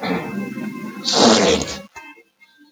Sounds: Sniff